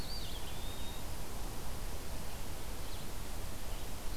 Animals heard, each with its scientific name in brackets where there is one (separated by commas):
Red-eyed Vireo (Vireo olivaceus), Eastern Wood-Pewee (Contopus virens)